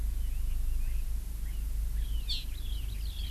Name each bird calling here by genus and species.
Leiothrix lutea, Chlorodrepanis virens